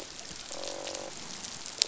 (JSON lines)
{"label": "biophony, croak", "recorder": "SoundTrap 500"}